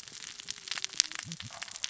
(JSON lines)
{"label": "biophony, cascading saw", "recorder": "SoundTrap 600 or HydroMoth"}